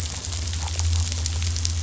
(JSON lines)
{"label": "anthrophony, boat engine", "recorder": "SoundTrap 500"}
{"label": "biophony", "recorder": "SoundTrap 500"}